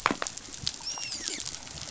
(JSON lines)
{"label": "biophony, dolphin", "recorder": "SoundTrap 500"}